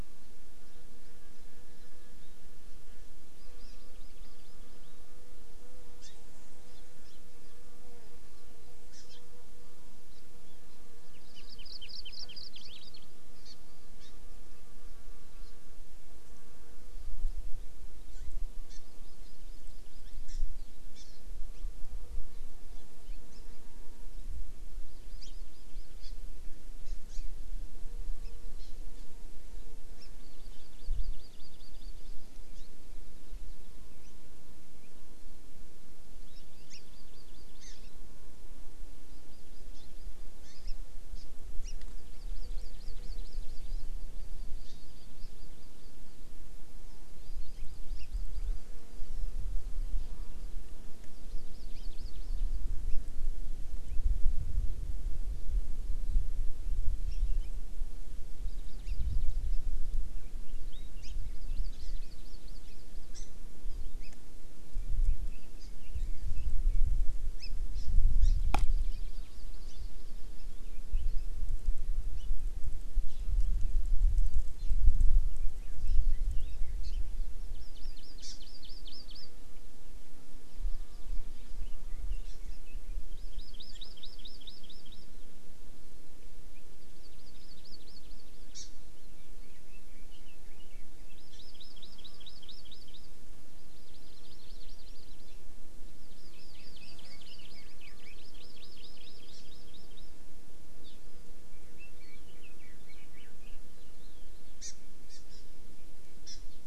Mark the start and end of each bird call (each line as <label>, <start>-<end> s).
Hawaii Amakihi (Chlorodrepanis virens), 3.6-5.1 s
Hawaii Amakihi (Chlorodrepanis virens), 6.0-6.2 s
Hawaii Amakihi (Chlorodrepanis virens), 6.7-7.2 s
Hawaii Amakihi (Chlorodrepanis virens), 8.9-9.2 s
Hawaii Amakihi (Chlorodrepanis virens), 10.1-10.3 s
Hawaii Amakihi (Chlorodrepanis virens), 11.0-13.1 s
Hawaii Amakihi (Chlorodrepanis virens), 13.5-13.6 s
Hawaii Amakihi (Chlorodrepanis virens), 14.0-14.1 s
Hawaii Amakihi (Chlorodrepanis virens), 15.4-15.5 s
Hawaii Amakihi (Chlorodrepanis virens), 18.1-18.3 s
Hawaii Amakihi (Chlorodrepanis virens), 18.7-20.4 s
Hawaii Amakihi (Chlorodrepanis virens), 20.9-21.2 s
Hawaii Amakihi (Chlorodrepanis virens), 21.5-21.6 s
Hawaii Amakihi (Chlorodrepanis virens), 23.1-23.4 s
Hawaii Amakihi (Chlorodrepanis virens), 24.9-26.1 s
Hawaii Amakihi (Chlorodrepanis virens), 26.9-27.3 s
Hawaii Amakihi (Chlorodrepanis virens), 28.2-29.1 s
Hawaii Amakihi (Chlorodrepanis virens), 30.0-32.7 s
Hawaii Amakihi (Chlorodrepanis virens), 34.0-34.1 s
Hawaii Amakihi (Chlorodrepanis virens), 36.3-37.9 s
Hawaii Amakihi (Chlorodrepanis virens), 39.1-40.8 s
Hawaii Amakihi (Chlorodrepanis virens), 41.2-41.3 s
Hawaii Amakihi (Chlorodrepanis virens), 41.6-46.2 s
Hawaii Amakihi (Chlorodrepanis virens), 47.2-50.6 s
Hawaii Amakihi (Chlorodrepanis virens), 51.1-52.6 s
Hawaii Amakihi (Chlorodrepanis virens), 52.9-53.0 s
Hawaii Amakihi (Chlorodrepanis virens), 53.9-54.0 s
Hawaii Amakihi (Chlorodrepanis virens), 57.1-57.5 s
Hawaii Amakihi (Chlorodrepanis virens), 58.5-59.7 s
Hawaii Amakihi (Chlorodrepanis virens), 61.0-63.3 s
Hawaii Amakihi (Chlorodrepanis virens), 64.0-64.1 s
Red-billed Leiothrix (Leiothrix lutea), 64.8-66.9 s
Hawaii Amakihi (Chlorodrepanis virens), 65.6-65.7 s
Hawaii Amakihi (Chlorodrepanis virens), 67.4-67.5 s
Hawaii Amakihi (Chlorodrepanis virens), 67.8-67.9 s
Hawaii Amakihi (Chlorodrepanis virens), 68.2-70.5 s
Hawaii Amakihi (Chlorodrepanis virens), 72.2-72.3 s
Hawaii Amakihi (Chlorodrepanis virens), 73.1-73.2 s
Red-billed Leiothrix (Leiothrix lutea), 75.3-77.0 s
Hawaii Amakihi (Chlorodrepanis virens), 75.8-76.0 s
Hawaii Amakihi (Chlorodrepanis virens), 76.8-76.9 s
Hawaii Amakihi (Chlorodrepanis virens), 77.4-79.3 s
Hawaii Amakihi (Chlorodrepanis virens), 80.5-81.4 s
Red-billed Leiothrix (Leiothrix lutea), 81.6-83.0 s
Hawaii Amakihi (Chlorodrepanis virens), 82.2-82.6 s
Hawaii Amakihi (Chlorodrepanis virens), 83.1-85.1 s
Hawaii Amakihi (Chlorodrepanis virens), 86.8-88.7 s
Red-billed Leiothrix (Leiothrix lutea), 89.1-90.9 s
Hawaii Amakihi (Chlorodrepanis virens), 91.1-93.1 s
Hawaii Amakihi (Chlorodrepanis virens), 93.6-95.4 s
Hawaii Amakihi (Chlorodrepanis virens), 95.9-100.1 s
Red-billed Leiothrix (Leiothrix lutea), 96.3-98.2 s
Hawaii Amakihi (Chlorodrepanis virens), 100.9-101.0 s
Red-billed Leiothrix (Leiothrix lutea), 101.5-103.6 s
Hawaii Amakihi (Chlorodrepanis virens), 103.8-104.3 s
Hawaii Amakihi (Chlorodrepanis virens), 104.6-104.7 s
Hawaii Amakihi (Chlorodrepanis virens), 105.1-105.4 s
Hawaii Amakihi (Chlorodrepanis virens), 106.3-106.4 s